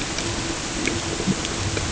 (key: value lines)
label: ambient
recorder: HydroMoth